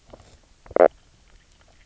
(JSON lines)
{"label": "biophony, knock croak", "recorder": "SoundTrap 300"}